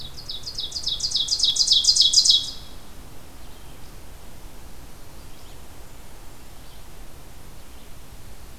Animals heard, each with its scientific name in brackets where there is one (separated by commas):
unknown mammal, Red-eyed Vireo (Vireo olivaceus), Ovenbird (Seiurus aurocapilla)